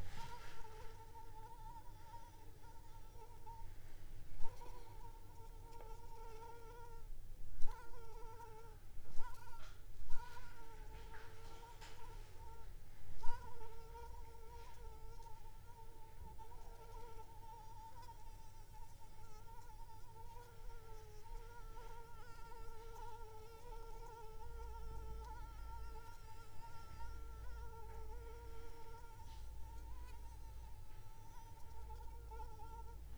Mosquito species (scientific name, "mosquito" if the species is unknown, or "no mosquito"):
Anopheles arabiensis